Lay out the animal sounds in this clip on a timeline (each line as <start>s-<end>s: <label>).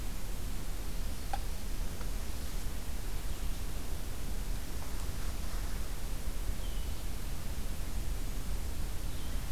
6.4s-9.5s: Red-eyed Vireo (Vireo olivaceus)